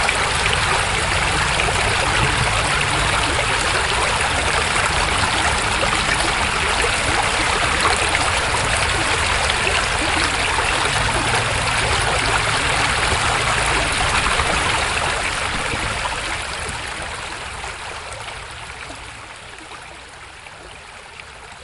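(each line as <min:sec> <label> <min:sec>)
0:00.2 Rain falling with water flowing. 0:16.5
0:16.5 Rain fades away, leaving only the sound of flowing water. 0:21.4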